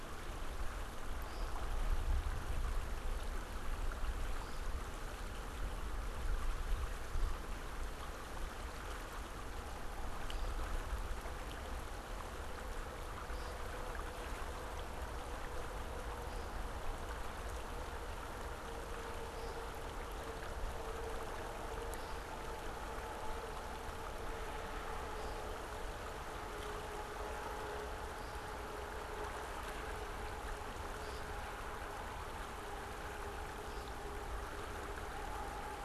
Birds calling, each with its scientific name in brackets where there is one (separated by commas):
American Woodcock (Scolopax minor)